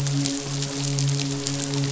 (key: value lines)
label: biophony, midshipman
recorder: SoundTrap 500